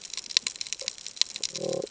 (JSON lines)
{"label": "ambient", "recorder": "HydroMoth"}